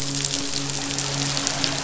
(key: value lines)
label: biophony, midshipman
recorder: SoundTrap 500